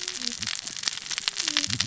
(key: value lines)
label: biophony, cascading saw
recorder: SoundTrap 600 or HydroMoth